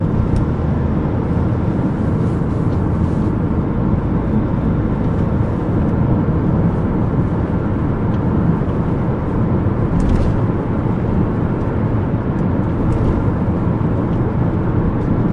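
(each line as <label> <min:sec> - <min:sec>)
A car is driving continuously on the road. 0:00.0 - 0:15.3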